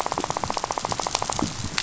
{"label": "biophony, rattle", "recorder": "SoundTrap 500"}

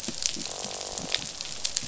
{"label": "biophony, croak", "recorder": "SoundTrap 500"}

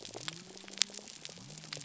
{"label": "biophony", "recorder": "SoundTrap 300"}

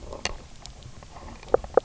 {"label": "biophony, knock croak", "recorder": "SoundTrap 300"}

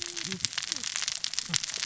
{"label": "biophony, cascading saw", "recorder": "SoundTrap 600 or HydroMoth"}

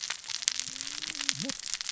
{"label": "biophony, cascading saw", "recorder": "SoundTrap 600 or HydroMoth"}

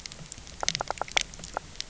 {"label": "biophony, knock", "recorder": "SoundTrap 300"}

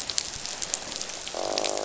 {"label": "biophony, croak", "recorder": "SoundTrap 500"}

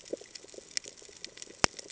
{"label": "ambient", "recorder": "HydroMoth"}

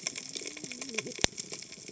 {"label": "biophony, cascading saw", "recorder": "HydroMoth"}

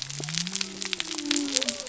{"label": "biophony", "recorder": "SoundTrap 300"}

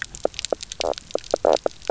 {"label": "biophony, knock croak", "recorder": "SoundTrap 300"}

